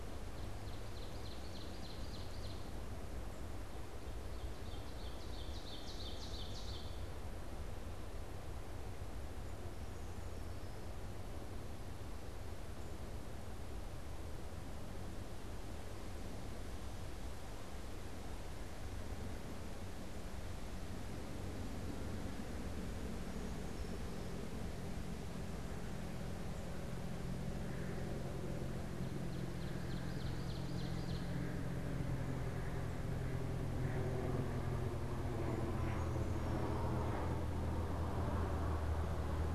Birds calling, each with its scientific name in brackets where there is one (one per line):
Ovenbird (Seiurus aurocapilla)
Brown Creeper (Certhia americana)